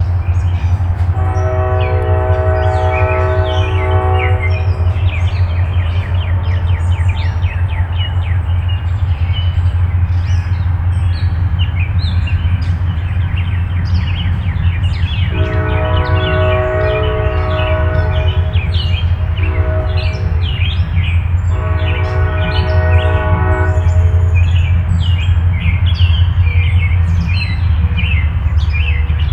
What type of transport is heard in the background?
train